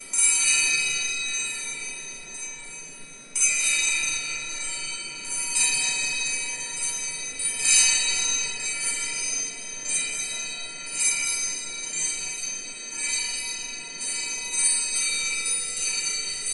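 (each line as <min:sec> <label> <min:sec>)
0:00.0 Chimes ringing loudly and rhythmically with an echoing effect. 0:16.5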